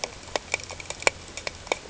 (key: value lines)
label: ambient
recorder: HydroMoth